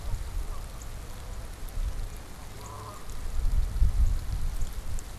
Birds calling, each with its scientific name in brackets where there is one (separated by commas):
Northern Cardinal (Cardinalis cardinalis), Canada Goose (Branta canadensis)